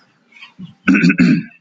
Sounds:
Throat clearing